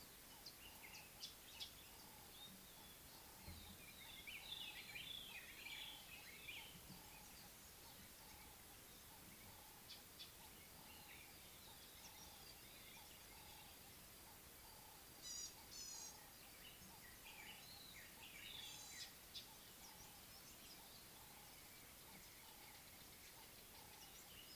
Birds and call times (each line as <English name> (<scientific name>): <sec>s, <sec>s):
Northern Puffback (Dryoscopus gambensis): 1.2s, 9.9s, 19.3s
White-browed Robin-Chat (Cossypha heuglini): 5.3s, 17.8s
Ring-necked Dove (Streptopelia capicola): 12.2s, 22.6s
Gray-backed Camaroptera (Camaroptera brevicaudata): 15.3s